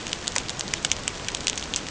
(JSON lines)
{"label": "ambient", "recorder": "HydroMoth"}